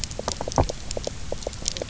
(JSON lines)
{"label": "biophony, knock croak", "recorder": "SoundTrap 300"}